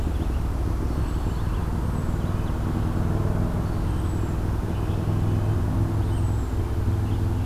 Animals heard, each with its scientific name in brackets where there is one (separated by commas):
Black-throated Green Warbler (Setophaga virens), Red-eyed Vireo (Vireo olivaceus), Red-breasted Nuthatch (Sitta canadensis)